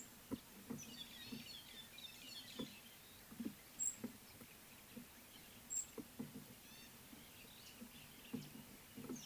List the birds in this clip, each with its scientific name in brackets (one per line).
Gray-backed Camaroptera (Camaroptera brevicaudata)
White-headed Buffalo-Weaver (Dinemellia dinemelli)